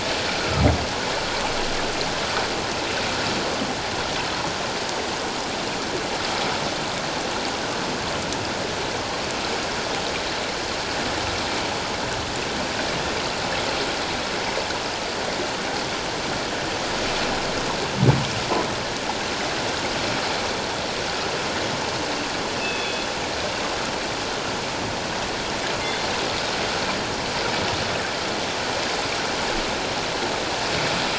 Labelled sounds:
22.6	23.1	killer whale, northern resident, G clan, call N24ii, 2.4 to 3.5 kHz

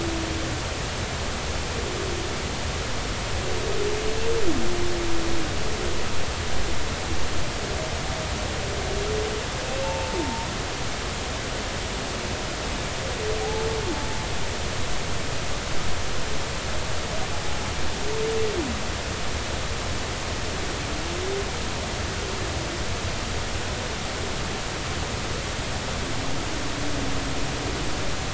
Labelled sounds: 9.8	10.5	humpback whale, 0.83 to 2.7 kHz
13.4	13.7	humpback whale, 0.80 to 0.90 kHz

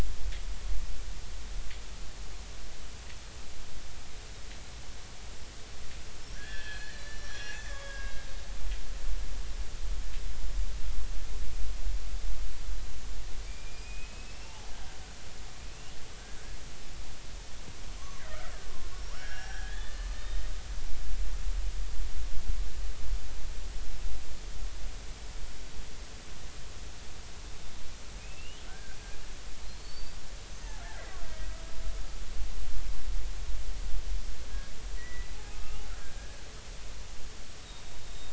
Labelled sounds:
6.3	8.3	killer whale, Bigg's (transient), 1.1 to 5.1 kHz
13.5	14.7	killer whale, Bigg's (transient), 0.80 to 5.6 kHz
18.0	20.4	killer whale, Bigg's (transient), 0.99 to 5.7 kHz
28.2	29.0	killer whale, Bigg's (transient), 1.4 to 3.2 kHz
29.6	30.2	killer whale, Bigg's (transient), 4.1 to 4.9 kHz
35.0	36.4	killer whale, Bigg's (transient), 1.2 to 2.9 kHz
37.6	38.3	killer whale, Bigg's (transient), 3.6 to 4.0 kHz

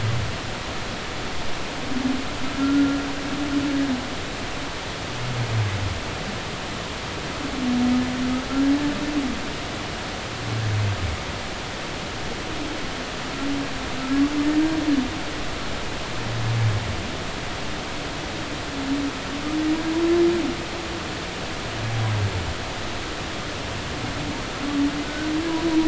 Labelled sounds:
2.6	3.0	humpback whale, 1.3 to 1.5 kHz
25.0	25.3	humpback whale, 1.4 to 1.6 kHz

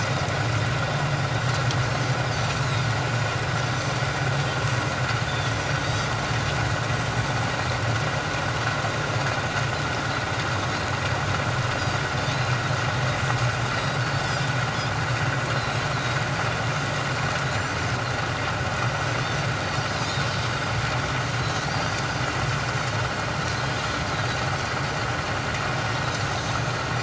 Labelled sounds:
2.6	2.9	Pacific white-sided dolphin, 3.5 to 4.1 kHz
5.3	6.1	Pacific white-sided dolphin, 3.3 to 6.1 kHz
11.7	12.0	Pacific white-sided dolphin, 4.6 to 5.0 kHz
13.7	14.0	Pacific white-sided dolphin, 4.7 to 4.8 kHz
15.5	16.2	Pacific white-sided dolphin, 3.7 to 4.3 kHz
19.9	20.2	Pacific white-sided dolphin, 3.8 to 4.2 kHz
21.4	22.0	Pacific white-sided dolphin, 3.8 to 4.9 kHz

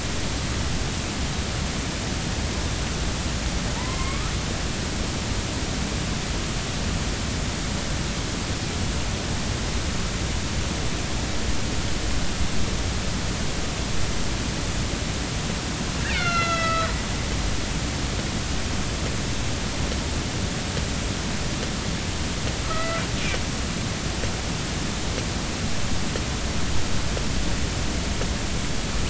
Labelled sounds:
3.8	4.3	killer whale, northern resident, A clan, AB subclan, call N16, 0.86 to 2.4 kHz
16.0	17.9	killer whale, northern resident, A clan, AB subclan, B01 pod, call N01ii, 1.2 to 5.5 kHz
22.7	23.0	killer whale, northern resident, A clan, AB subclan, B01 pod, call N18, 1.2 to 2.0 kHz

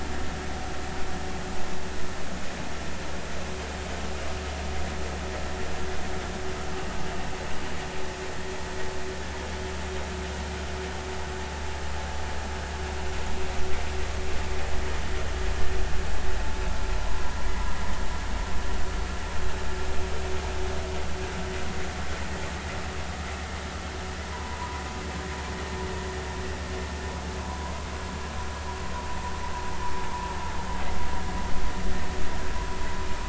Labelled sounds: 24.2	24.8	vessel noise, 0.93 to 1.1 kHz
27.4	27.7	vessel noise, 0.90 to 1.1 kHz

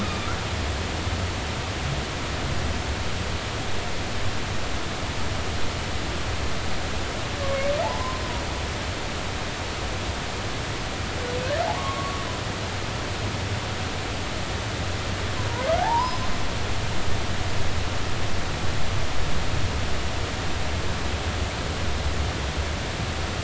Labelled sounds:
0.0	0.3	humpback whale, 1.1 to 2.6 kHz
7.8	8.2	humpback whale, 0.80 to 1.1 kHz
11.7	12.2	humpback whale, 0.80 to 1.2 kHz
15.8	16.3	humpback whale, 0.80 to 5.2 kHz

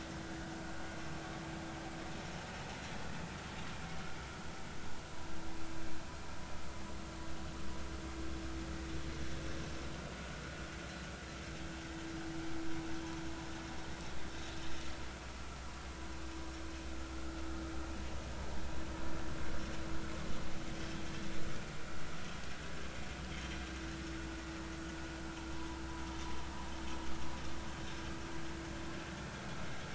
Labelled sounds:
25.6	25.8	vessel noise, 0.90 to 1.0 kHz

